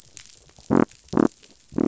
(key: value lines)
label: biophony
recorder: SoundTrap 500